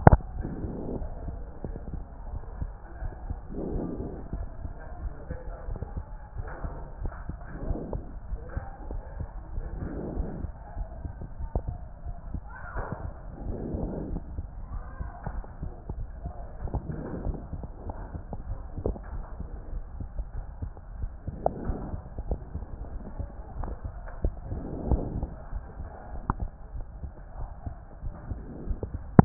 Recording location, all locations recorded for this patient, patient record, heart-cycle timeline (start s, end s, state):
aortic valve (AV)
aortic valve (AV)+pulmonary valve (PV)+tricuspid valve (TV)+mitral valve (MV)
#Age: Child
#Sex: Male
#Height: 142.0 cm
#Weight: 42.4 kg
#Pregnancy status: False
#Murmur: Absent
#Murmur locations: nan
#Most audible location: nan
#Systolic murmur timing: nan
#Systolic murmur shape: nan
#Systolic murmur grading: nan
#Systolic murmur pitch: nan
#Systolic murmur quality: nan
#Diastolic murmur timing: nan
#Diastolic murmur shape: nan
#Diastolic murmur grading: nan
#Diastolic murmur pitch: nan
#Diastolic murmur quality: nan
#Outcome: Normal
#Campaign: 2014 screening campaign
0.00	0.48	unannotated
0.48	0.60	systole
0.60	0.72	S2
0.72	0.98	diastole
0.98	1.08	S1
1.08	1.26	systole
1.26	1.38	S2
1.38	1.66	diastole
1.66	1.78	S1
1.78	1.92	systole
1.92	2.02	S2
2.02	2.30	diastole
2.30	2.42	S1
2.42	2.60	systole
2.60	2.70	S2
2.70	3.02	diastole
3.02	3.12	S1
3.12	3.26	systole
3.26	3.38	S2
3.38	3.70	diastole
3.70	3.84	S1
3.84	3.98	systole
3.98	4.08	S2
4.08	4.34	diastole
4.34	4.48	S1
4.48	4.62	systole
4.62	4.72	S2
4.72	5.02	diastole
5.02	5.12	S1
5.12	5.28	systole
5.28	5.38	S2
5.38	5.68	diastole
5.68	5.80	S1
5.80	5.94	systole
5.94	6.04	S2
6.04	6.36	diastole
6.36	6.48	S1
6.48	6.62	systole
6.62	6.74	S2
6.74	7.02	diastole
7.02	7.12	S1
7.12	7.28	systole
7.28	7.38	S2
7.38	7.64	diastole
7.64	7.78	S1
7.78	7.92	systole
7.92	8.04	S2
8.04	8.30	diastole
8.30	8.40	S1
8.40	8.54	systole
8.54	8.64	S2
8.64	8.90	diastole
8.90	9.02	S1
9.02	9.18	systole
9.18	9.28	S2
9.28	9.54	diastole
9.54	9.68	S1
9.68	9.80	systole
9.80	9.90	S2
9.90	10.14	diastole
10.14	10.28	S1
10.28	10.42	systole
10.42	10.52	S2
10.52	10.76	diastole
10.76	10.88	S1
10.88	11.02	systole
11.02	11.12	S2
11.12	11.34	diastole
11.34	29.25	unannotated